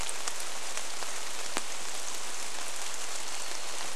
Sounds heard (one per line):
rain
Varied Thrush song